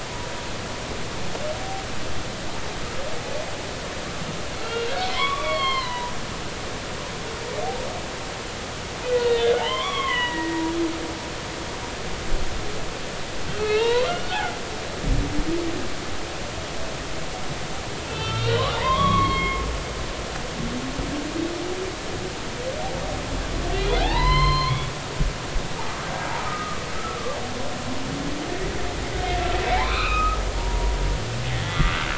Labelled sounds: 0.1	0.5	humpback whale, 0.90 to 1.0 kHz
4.6	6.1	humpback whale, 0.90 to 4.5 kHz
9.6	10.6	humpback whale, 0.80 to 3.6 kHz
13.6	14.6	humpback whale, 0.83 to 4.1 kHz
18.1	19.6	humpback whale, 0.90 to 4.4 kHz
23.7	26.8	humpback whale, 0.80 to 4.3 kHz
27.1	27.4	humpback whale, 1.1 to 1.2 kHz
29.6	31.0	humpback whale, 0.80 to 4.2 kHz
31.5	32.1	humpback whale, 1.1 to 3.5 kHz

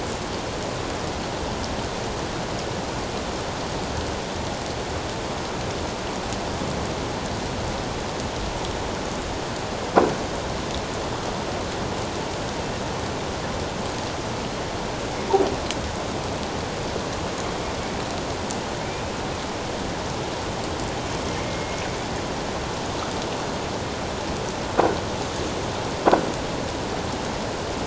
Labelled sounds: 18.9	19.1	killer whale, northern resident, 2.3 to 2.6 kHz
21.5	21.8	killer whale, northern resident, 2.1 to 2.2 kHz

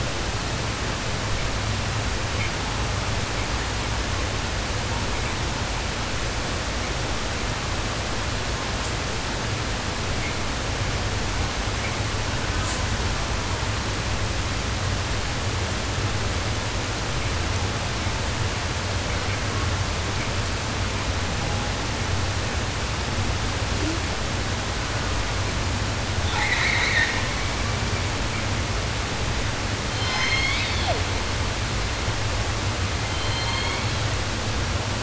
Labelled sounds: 8.8	8.9	killer whale, southern resident, 3.8 to 8.0 kHz
12.3	13.8	killer whale, southern resident, 0.54 to 8.0 kHz
26.2	27.9	killer whale, southern resident, call S10, 0.10 to 5.9 kHz
29.8	31.2	killer whale, southern resident, J pod, call S01, 0.10 to 7.3 kHz
32.9	34.2	killer whale, southern resident, J pod, call S01, 0.10 to 5.1 kHz

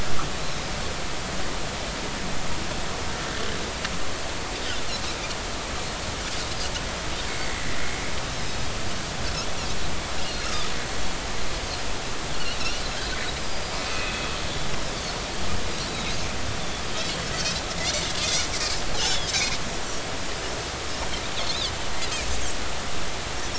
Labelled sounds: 7.3	8.7	Pacific white-sided dolphin, 1.8 to 5.2 kHz
10.5	10.7	Pacific white-sided dolphin, 1.2 to 1.4 kHz
13.4	14.3	Pacific white-sided dolphin, 2.5 to 5.0 kHz
15.9	16.2	Pacific white-sided dolphin, 3.7 to 4.1 kHz
16.9	17.2	Pacific white-sided dolphin, 3.1 to 3.4 kHz
17.7	18.5	Pacific white-sided dolphin, 2.0 to 4.2 kHz
19.0	19.6	Pacific white-sided dolphin, 2.0 to 3.6 kHz
21.5	21.7	Pacific white-sided dolphin, 3.0 to 4.0 kHz

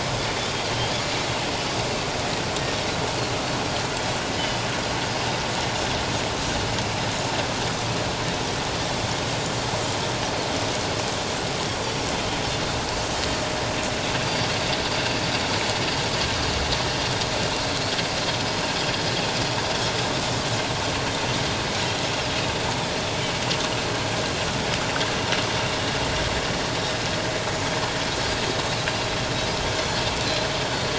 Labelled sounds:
0.0	0.3	Pacific white-sided dolphin, 4.9 to 5.2 kHz

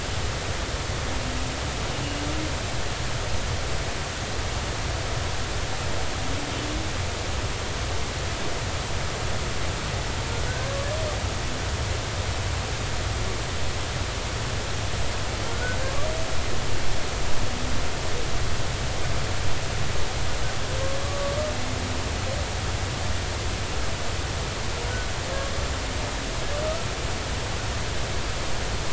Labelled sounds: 15.5	16.1	humpback whale, 1.0 to 1.6 kHz
21.0	21.3	humpback whale, 1.1 to 1.2 kHz

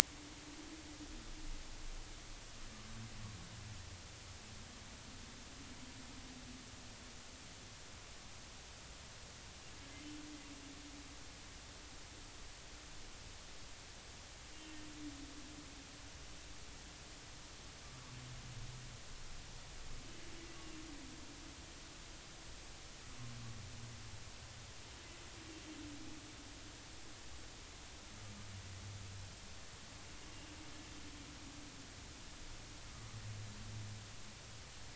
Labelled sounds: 32.9	33.1	humpback whale, 1.0 to 1.3 kHz

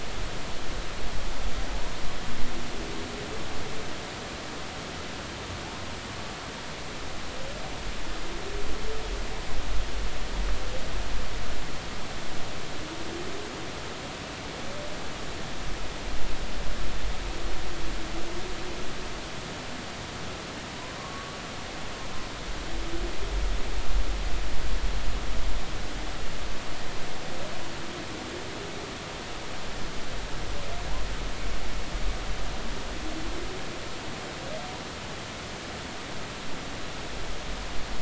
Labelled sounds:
21.0	21.4	humpback whale, 1.0 to 1.2 kHz

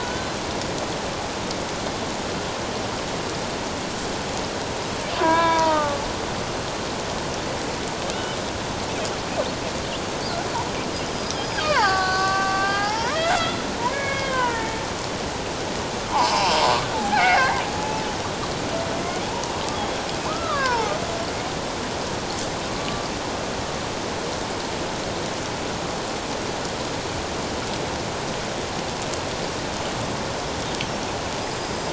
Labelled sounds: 5.1	6.0	killer whale, Bigg's (transient), 0.81 to 3.7 kHz
8.1	8.4	killer whale, Bigg's (transient), 2.7 to 3.1 kHz
11.1	14.9	killer whale, Bigg's (transient), 0.78 to 5.4 kHz
16.1	16.5	killer whale, Bigg's (transient), 0.78 to 1.2 kHz
16.9	17.6	killer whale, Bigg's (transient), 0.78 to 2.8 kHz
20.3	20.9	killer whale, Bigg's (transient), 0.81 to 1.8 kHz
22.7	23.0	killer whale, Bigg's (transient), 1.1 to 1.2 kHz
31.4	31.9	killer whale, Bigg's (transient), 4.8 to 5.1 kHz

